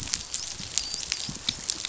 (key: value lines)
label: biophony, dolphin
recorder: SoundTrap 500